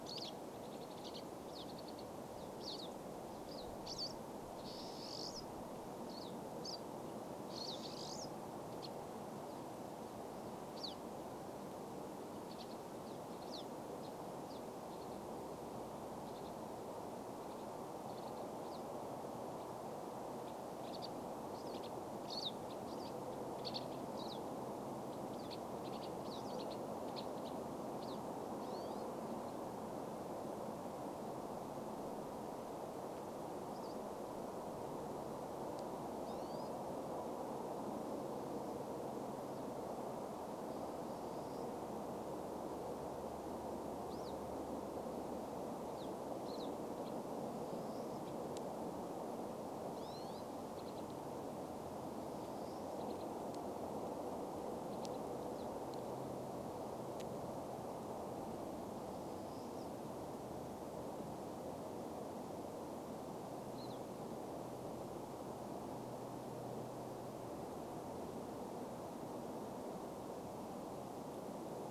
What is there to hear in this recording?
Pine Siskin song, Pine Siskin call